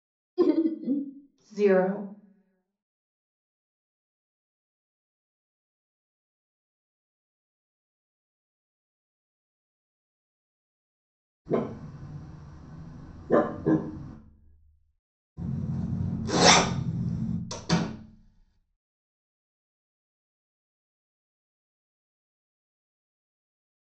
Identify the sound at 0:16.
zipper